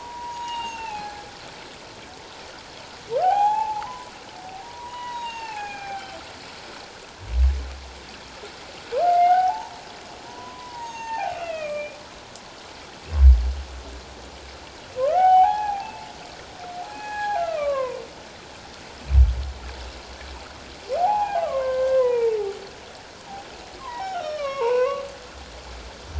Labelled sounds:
0.0	1.2	humpback whale, 0.78 to 7.6 kHz
3.2	4.1	humpback whale, 0.78 to 7.7 kHz
4.6	6.1	humpback whale, 0.78 to 6.7 kHz
9.0	12.0	humpback whale, 0.78 to 7.6 kHz
15.0	15.9	humpback whale, 0.78 to 3.1 kHz
16.8	18.0	humpback whale, 0.78 to 6.8 kHz
21.0	22.4	humpback whale, 0.78 to 2.6 kHz
23.8	25.0	humpback whale, 0.78 to 5.8 kHz

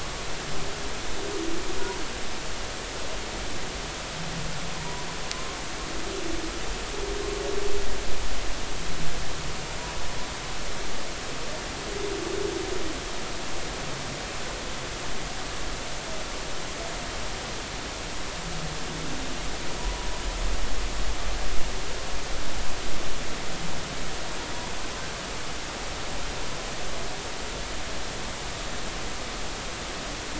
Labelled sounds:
4.8	5.1	humpback whale, 0.90 to 1.0 kHz
19.8	20.1	humpback whale, 0.93 to 1.1 kHz

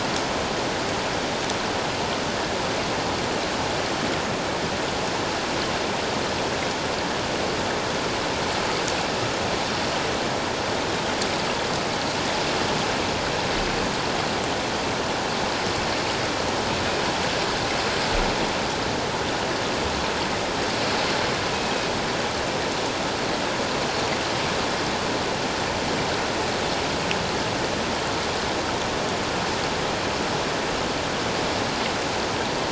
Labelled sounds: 21.5	21.9	Pacific white-sided dolphin, 2.5 to 2.6 kHz

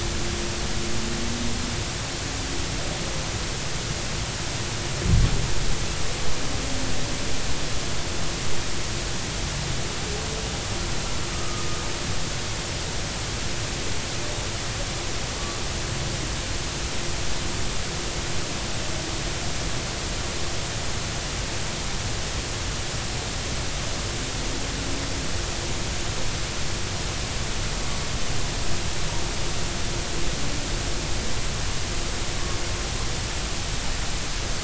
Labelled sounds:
11.3	11.6	humpback whale, 1.2 to 1.3 kHz

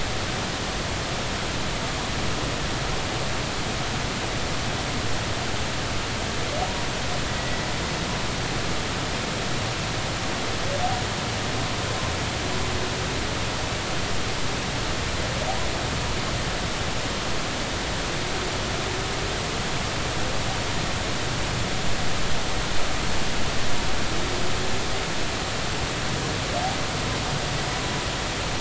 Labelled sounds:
7.3	7.6	humpback whale, 1.9 to 2.0 kHz

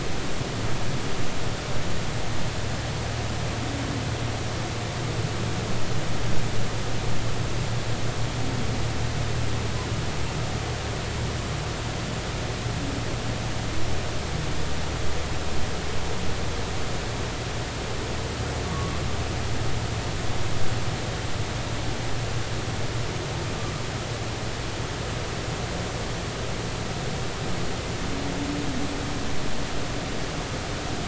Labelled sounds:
19.7	20.0	humpback whale, 1.1 to 1.2 kHz

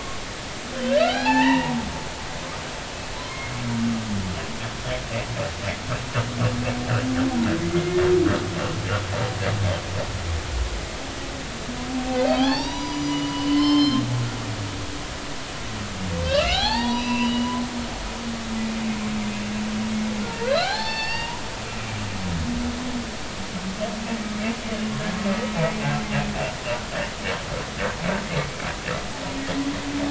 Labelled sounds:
0.8	1.8	humpback whale, 0.80 to 4.2 kHz
3.2	3.5	humpback whale, 0.96 to 2.2 kHz
7.7	8.0	humpback whale, 2.0 to 2.2 kHz
12.3	14.1	humpback whale, 0.80 to 6.0 kHz
16.2	17.5	humpback whale, 0.80 to 5.9 kHz
20.5	21.4	humpback whale, 0.80 to 5.4 kHz

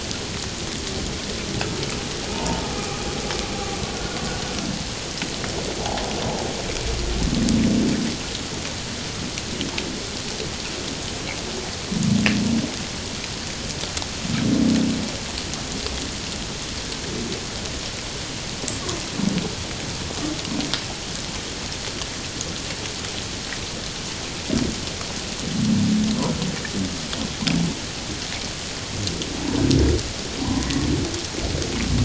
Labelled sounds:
2.3	2.6	humpback whale, 0.84 to 1.0 kHz
3.9	4.2	humpback whale, 1.4 to 1.5 kHz
30.4	30.7	humpback whale, 0.91 to 1.1 kHz

